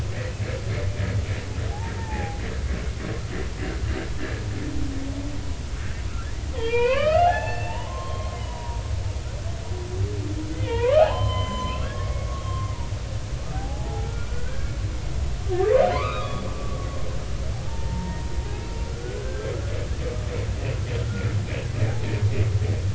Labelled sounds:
2.0	2.4	humpback whale, 0.80 to 2.0 kHz
6.1	8.8	humpback whale, 0.80 to 3.5 kHz
10.5	12.8	humpback whale, 0.80 to 7.2 kHz
13.5	14.7	humpback whale, 0.80 to 2.5 kHz
15.9	16.9	humpback whale, 0.96 to 3.9 kHz
17.5	19.5	humpback whale, 0.80 to 1.6 kHz
21.1	21.3	humpback whale, 1.3 to 1.5 kHz
21.9	22.1	humpback whale, 0.80 to 0.96 kHz

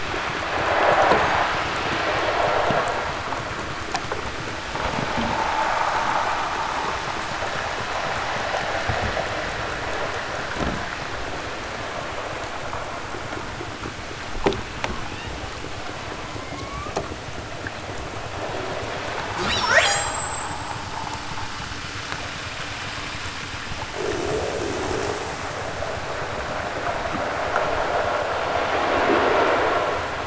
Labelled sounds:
15.0	15.5	killer whale, southern Alaska resident, 1.1 to 4.3 kHz
16.2	17.2	killer whale, southern Alaska resident, 0.60 to 3.1 kHz
19.3	20.7	killer whale, southern Alaska resident, 0.28 to 8.0 kHz

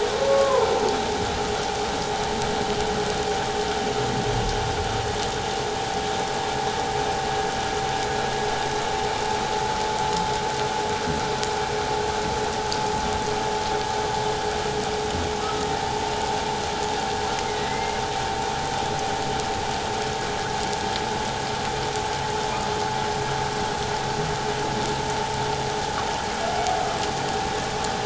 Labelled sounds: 0.1	0.7	humpback whale, 0.88 to 1.2 kHz
15.4	15.7	humpback whale, 1.2 to 1.4 kHz
17.4	18.0	humpback whale, 1.9 to 2.2 kHz

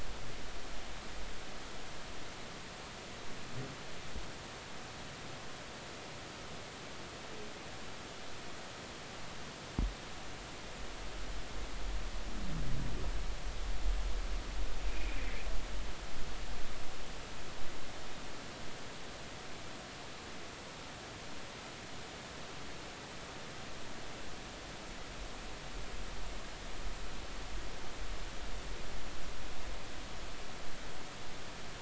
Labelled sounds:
14.9	15.2	humpback whale, 2.2 to 2.6 kHz

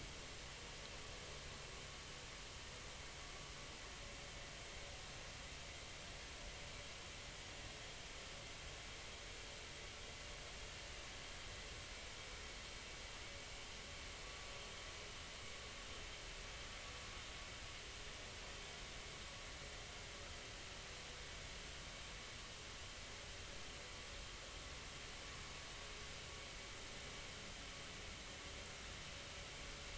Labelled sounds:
14.2	14.5	vessel noise, 1.1 to 1.2 kHz

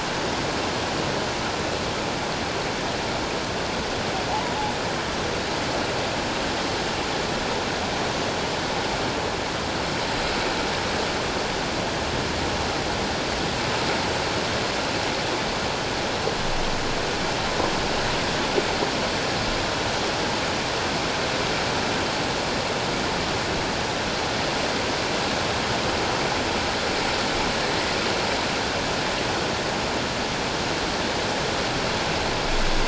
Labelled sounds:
4.3	4.6	humpback whale, 0.78 to 1.0 kHz

